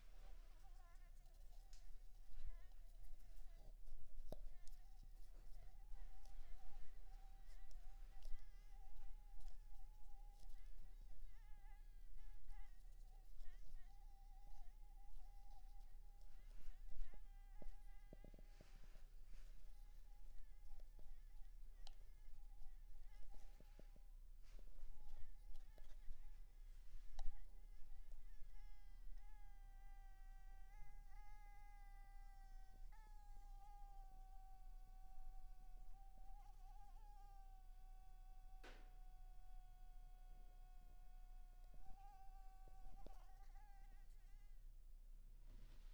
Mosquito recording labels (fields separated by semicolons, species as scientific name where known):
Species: Anopheles maculipalpis; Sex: female; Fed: unfed; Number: one; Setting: cup